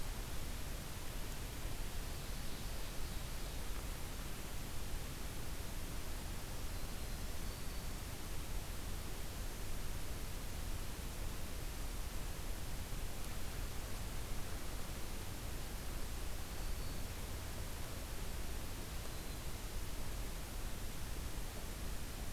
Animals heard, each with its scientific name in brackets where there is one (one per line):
Black-throated Green Warbler (Setophaga virens)
Ovenbird (Seiurus aurocapilla)